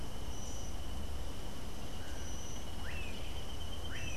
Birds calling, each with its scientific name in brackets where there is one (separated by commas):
Melodious Blackbird (Dives dives)